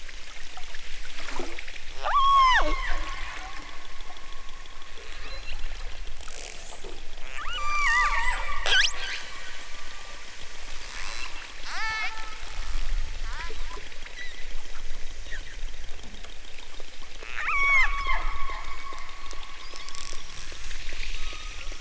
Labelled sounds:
2.0	3.6	killer whale, southern Alaska resident, 0.28 to 8.0 kHz
5.1	5.6	killer whale, southern Alaska resident, 1.4 to 4.7 kHz
7.3	8.7	killer whale, southern Alaska resident, 0.46 to 8.0 kHz
10.8	12.1	killer whale, southern Alaska resident, 0.55 to 8.0 kHz
13.2	13.6	killer whale, southern Alaska resident, 0.64 to 3.0 kHz
17.3	18.2	killer whale, southern Alaska resident, 0.46 to 8.0 kHz

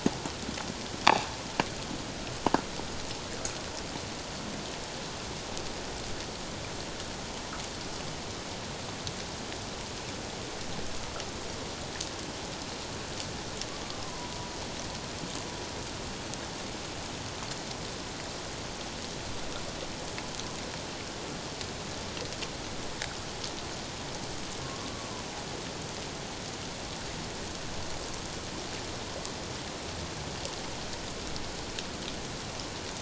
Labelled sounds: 14.0	14.3	humpback whale, 0.94 to 1.1 kHz
24.8	25.1	humpback whale, 1.1 to 1.2 kHz

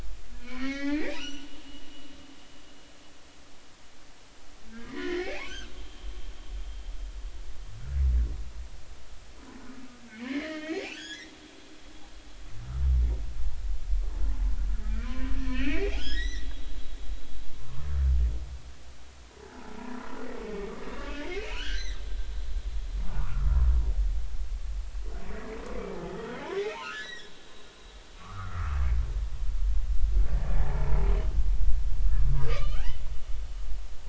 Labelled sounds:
0.4	1.6	humpback whale, 1.2 to 6.0 kHz
4.8	5.7	humpback whale, 0.80 to 3.3 kHz
10.1	11.2	humpback whale, 1.4 to 3.6 kHz
14.8	16.5	humpback whale, 0.96 to 6.0 kHz
17.5	17.9	humpback whale, 0.90 to 1.2 kHz
19.5	19.8	humpback whale, 1.2 to 1.8 kHz
20.4	20.7	humpback whale, 2.2 to 2.3 kHz
21.2	22.0	humpback whale, 1.2 to 6.2 kHz
23.1	23.5	humpback whale, 0.86 to 1.5 kHz
26.6	27.3	humpback whale, 1.2 to 5.9 kHz
28.2	28.8	humpback whale, 1.1 to 1.5 kHz
30.6	30.9	humpback whale, 0.80 to 0.99 kHz
32.3	32.9	humpback whale, 0.93 to 2.6 kHz

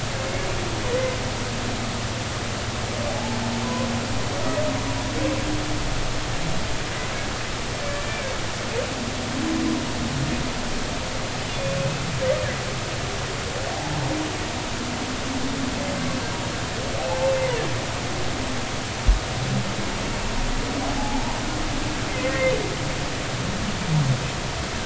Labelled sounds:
3.1	3.9	humpback whale, 0.80 to 1.1 kHz
8.0	8.3	humpback whale, 2.2 to 2.4 kHz
11.5	12.0	humpback whale, 2.4 to 2.7 kHz
13.7	14.0	humpback whale, 0.80 to 1.0 kHz
17.0	17.3	humpback whale, 0.80 to 0.93 kHz
21.0	21.2	humpback whale, 0.80 to 0.93 kHz

